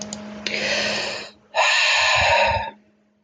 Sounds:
Sigh